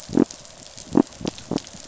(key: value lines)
label: biophony
recorder: SoundTrap 500